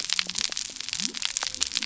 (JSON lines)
{"label": "biophony", "recorder": "SoundTrap 300"}